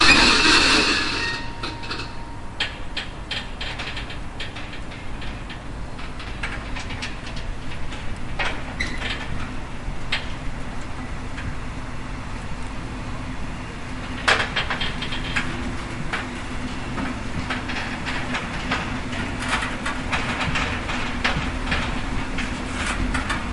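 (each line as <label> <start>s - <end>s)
Brakes are being released. 0.0s - 1.4s
The railway squeaks while in use. 1.5s - 23.5s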